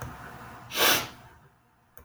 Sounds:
Sniff